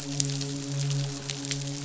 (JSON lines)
{"label": "biophony, midshipman", "recorder": "SoundTrap 500"}